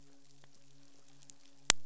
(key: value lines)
label: biophony, midshipman
recorder: SoundTrap 500